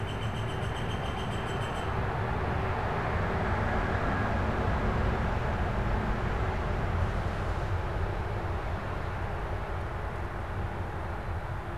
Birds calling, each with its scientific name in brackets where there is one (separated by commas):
Northern Flicker (Colaptes auratus)